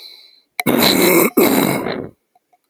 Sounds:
Throat clearing